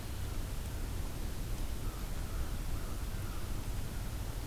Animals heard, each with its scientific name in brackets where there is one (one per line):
American Crow (Corvus brachyrhynchos)